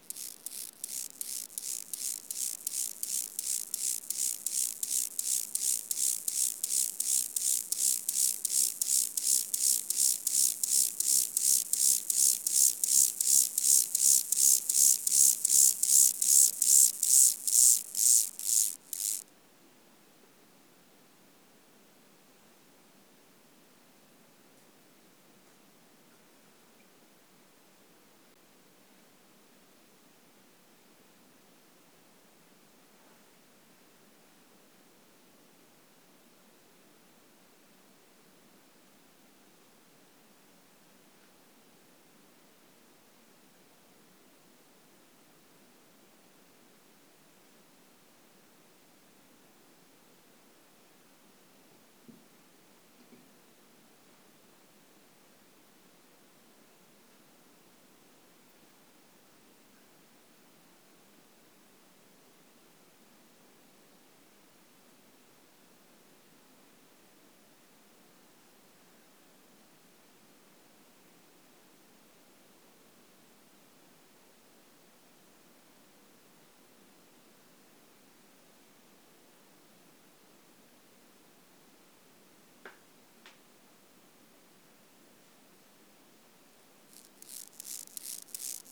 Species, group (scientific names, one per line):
Chorthippus mollis
Orthoptera